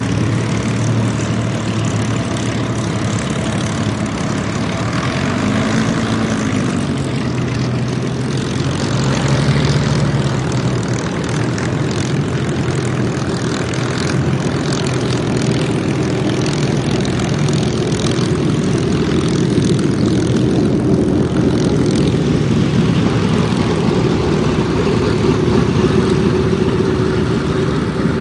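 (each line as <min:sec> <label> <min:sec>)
0:00.0 An engine hums steadily and consistently. 0:28.2
0:04.8 The engine revs, producing a louder and more intense sound. 0:07.0
0:08.7 The engine revs, producing a louder and more intense sound. 0:11.0
0:17.6 A propeller creates a constant, mechanical hum that is steady and unwavering. 0:28.2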